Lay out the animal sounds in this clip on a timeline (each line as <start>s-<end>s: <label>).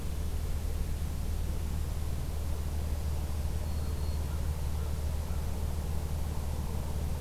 2.8s-4.3s: Black-throated Green Warbler (Setophaga virens)